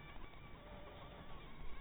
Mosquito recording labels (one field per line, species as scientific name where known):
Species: Anopheles maculatus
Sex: female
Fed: blood-fed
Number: one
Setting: cup